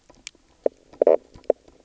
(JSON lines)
{"label": "biophony, knock croak", "recorder": "SoundTrap 300"}